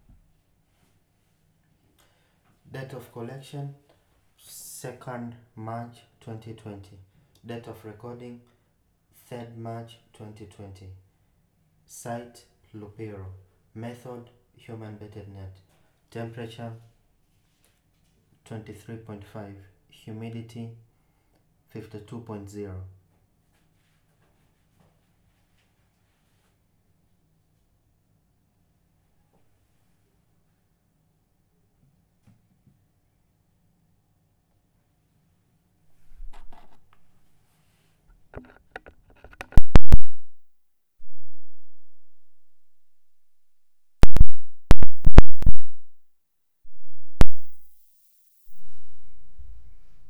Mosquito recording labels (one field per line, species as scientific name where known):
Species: no mosquito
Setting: cup